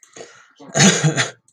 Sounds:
Cough